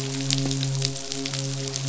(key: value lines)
label: biophony, midshipman
recorder: SoundTrap 500